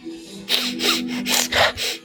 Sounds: Sniff